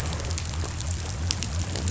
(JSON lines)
{"label": "biophony", "recorder": "SoundTrap 500"}